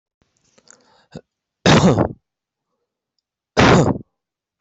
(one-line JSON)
{"expert_labels": [{"quality": "poor", "cough_type": "unknown", "dyspnea": false, "wheezing": false, "stridor": false, "choking": false, "congestion": false, "nothing": true, "diagnosis": "healthy cough", "severity": "pseudocough/healthy cough"}], "age": 29, "gender": "female", "respiratory_condition": true, "fever_muscle_pain": true, "status": "COVID-19"}